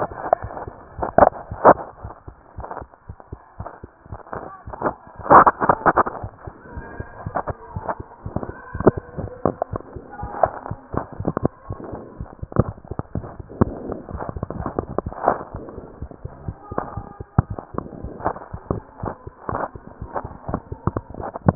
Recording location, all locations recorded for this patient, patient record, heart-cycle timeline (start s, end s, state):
mitral valve (MV)
aortic valve (AV)+pulmonary valve (PV)+tricuspid valve (TV)+mitral valve (MV)
#Age: Child
#Sex: Male
#Height: 101.0 cm
#Weight: 18.5 kg
#Pregnancy status: False
#Murmur: Absent
#Murmur locations: nan
#Most audible location: nan
#Systolic murmur timing: nan
#Systolic murmur shape: nan
#Systolic murmur grading: nan
#Systolic murmur pitch: nan
#Systolic murmur quality: nan
#Diastolic murmur timing: nan
#Diastolic murmur shape: nan
#Diastolic murmur grading: nan
#Diastolic murmur pitch: nan
#Diastolic murmur quality: nan
#Outcome: Abnormal
#Campaign: 2015 screening campaign
0.00	6.22	unannotated
6.22	6.32	S1
6.32	6.46	systole
6.46	6.56	S2
6.56	6.72	diastole
6.72	6.86	S1
6.86	6.98	systole
6.98	7.08	S2
7.08	7.24	diastole
7.24	7.34	S1
7.34	7.48	systole
7.48	7.58	S2
7.58	7.72	diastole
7.72	7.84	S1
7.84	7.96	systole
7.96	8.06	S2
8.06	8.24	diastole
8.24	8.34	S1
8.34	8.44	systole
8.44	8.56	S2
8.56	8.74	diastole
8.74	8.84	S1
8.84	8.96	systole
8.96	9.03	S2
9.03	9.21	diastole
9.21	9.30	S1
9.30	9.46	systole
9.46	9.58	S2
9.58	9.72	diastole
9.72	9.84	S1
9.84	9.94	systole
9.94	10.04	S2
10.04	10.20	diastole
10.20	10.32	S1
10.32	10.42	systole
10.42	10.54	S2
10.54	10.68	diastole
10.68	10.78	S1
10.78	10.92	systole
10.92	11.03	S2
11.03	11.18	diastole
11.18	11.27	S1
11.27	11.42	systole
11.42	11.52	S2
11.52	11.68	diastole
11.68	11.78	S1
11.78	11.92	systole
11.92	12.01	S2
12.01	12.18	diastole
12.18	12.28	S1
12.28	12.38	systole
12.38	12.48	S2
12.48	12.66	diastole
12.66	12.76	S1
12.76	12.88	systole
12.88	12.96	S2
12.96	13.14	diastole
13.14	13.23	S1
13.23	13.38	systole
13.38	13.46	S2
13.46	21.55	unannotated